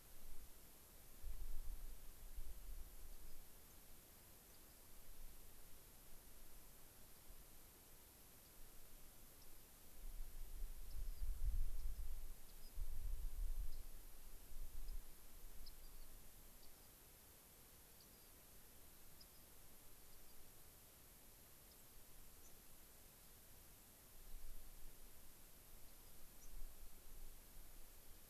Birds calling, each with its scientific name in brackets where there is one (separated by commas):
White-crowned Sparrow (Zonotrichia leucophrys), Rock Wren (Salpinctes obsoletus), Mountain Chickadee (Poecile gambeli)